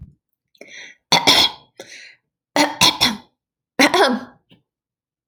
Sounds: Throat clearing